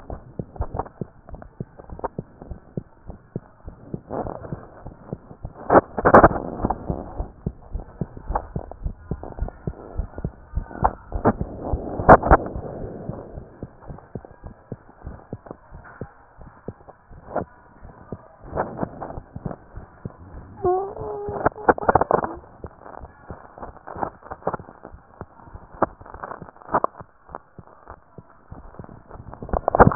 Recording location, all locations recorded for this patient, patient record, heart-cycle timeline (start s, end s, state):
tricuspid valve (TV)
pulmonary valve (PV)+tricuspid valve (TV)+mitral valve (MV)
#Age: Child
#Sex: Female
#Height: 88.0 cm
#Weight: 12.1 kg
#Pregnancy status: False
#Murmur: Unknown
#Murmur locations: nan
#Most audible location: nan
#Systolic murmur timing: nan
#Systolic murmur shape: nan
#Systolic murmur grading: nan
#Systolic murmur pitch: nan
#Systolic murmur quality: nan
#Diastolic murmur timing: nan
#Diastolic murmur shape: nan
#Diastolic murmur grading: nan
#Diastolic murmur pitch: nan
#Diastolic murmur quality: nan
#Outcome: Abnormal
#Campaign: 2015 screening campaign
0.00	2.43	unannotated
2.43	2.60	S1
2.60	2.76	systole
2.76	2.84	S2
2.84	3.08	diastole
3.08	3.18	S1
3.18	3.34	systole
3.34	3.44	S2
3.44	3.66	diastole
3.66	3.76	S1
3.76	3.92	systole
3.92	4.00	S2
4.00	4.14	diastole
4.14	4.32	S1
4.32	4.50	systole
4.50	4.64	S2
4.64	4.84	diastole
4.84	4.94	S1
4.94	5.10	systole
5.10	5.20	S2
5.20	5.40	diastole
5.40	5.53	S1
5.53	7.14	unannotated
7.14	7.28	S1
7.28	7.42	systole
7.42	7.54	S2
7.54	7.70	diastole
7.70	7.84	S1
7.84	8.00	systole
8.00	8.10	S2
8.10	8.28	diastole
8.28	8.42	S1
8.42	8.54	systole
8.54	8.64	S2
8.64	8.80	diastole
8.80	8.94	S1
8.94	9.08	systole
9.08	9.22	S2
9.22	9.38	diastole
9.38	9.52	S1
9.52	9.64	systole
9.64	9.74	S2
9.74	9.90	diastole
9.90	10.08	S1
10.08	10.18	systole
10.18	10.32	S2
10.32	10.48	diastole
10.48	10.66	S1
10.66	10.80	systole
10.80	10.96	S2
10.96	11.13	diastole
11.13	11.24	S1
11.24	11.39	systole
11.39	11.47	S2
11.47	11.70	diastole
11.70	11.81	S1
11.81	29.95	unannotated